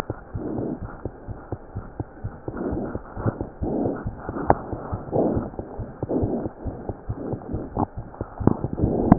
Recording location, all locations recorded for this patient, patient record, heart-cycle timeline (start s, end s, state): aortic valve (AV)
aortic valve (AV)+pulmonary valve (PV)+tricuspid valve (TV)+mitral valve (MV)
#Age: Child
#Sex: Male
#Height: 91.0 cm
#Weight: 15.0 kg
#Pregnancy status: False
#Murmur: Present
#Murmur locations: aortic valve (AV)+pulmonary valve (PV)
#Most audible location: pulmonary valve (PV)
#Systolic murmur timing: Early-systolic
#Systolic murmur shape: Plateau
#Systolic murmur grading: I/VI
#Systolic murmur pitch: Low
#Systolic murmur quality: Harsh
#Diastolic murmur timing: nan
#Diastolic murmur shape: nan
#Diastolic murmur grading: nan
#Diastolic murmur pitch: nan
#Diastolic murmur quality: nan
#Outcome: Abnormal
#Campaign: 2015 screening campaign
0.00	0.78	unannotated
0.78	0.88	S1
0.88	1.02	systole
1.02	1.11	S2
1.11	1.25	diastole
1.25	1.35	S1
1.35	1.49	systole
1.49	1.57	S2
1.57	1.73	diastole
1.73	1.82	S1
1.82	1.97	systole
1.97	2.05	S2
2.05	2.22	diastole
2.22	2.30	S1
2.30	2.45	systole
2.45	2.52	S2
2.52	2.70	diastole
2.70	2.77	S1
2.77	2.92	systole
2.92	2.99	S2
2.99	3.14	diastole
3.14	3.25	S1
3.25	3.36	systole
3.36	3.45	S2
3.45	3.60	diastole
3.60	3.68	S1
3.68	3.83	systole
3.83	3.90	S2
3.90	4.03	diastole
4.03	4.11	S1
4.11	9.18	unannotated